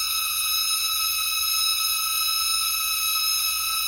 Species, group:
Macrosemia kareisana, Cicadidae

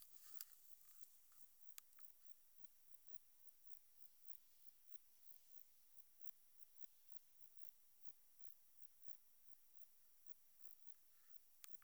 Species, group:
Metrioptera saussuriana, Orthoptera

